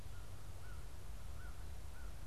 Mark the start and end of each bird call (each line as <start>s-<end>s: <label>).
0.0s-2.2s: American Crow (Corvus brachyrhynchos)